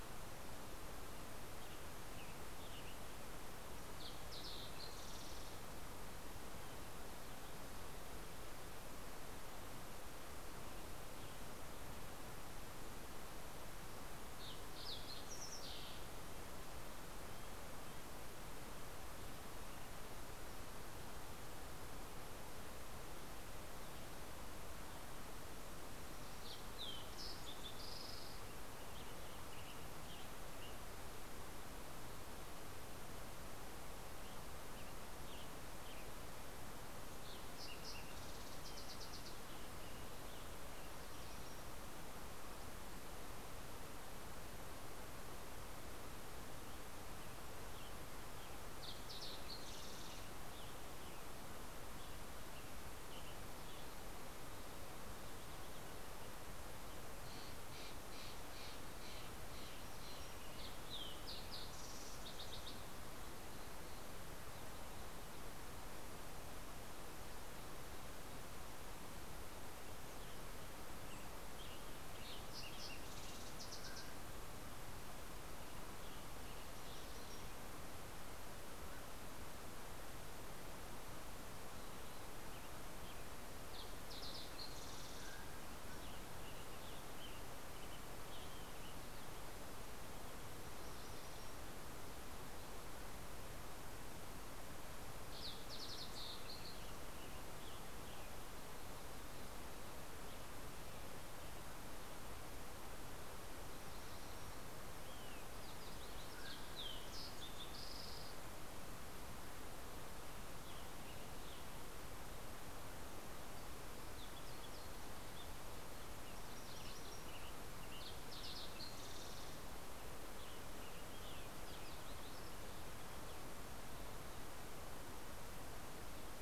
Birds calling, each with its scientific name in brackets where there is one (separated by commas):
Fox Sparrow (Passerella iliaca), Western Tanager (Piranga ludoviciana), Olive-sided Flycatcher (Contopus cooperi), Red-breasted Nuthatch (Sitta canadensis), Yellow-rumped Warbler (Setophaga coronata), Mountain Quail (Oreortyx pictus), MacGillivray's Warbler (Geothlypis tolmiei), Steller's Jay (Cyanocitta stelleri)